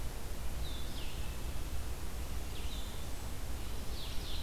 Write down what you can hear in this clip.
Blue-headed Vireo, Golden-crowned Kinglet